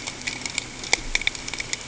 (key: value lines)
label: ambient
recorder: HydroMoth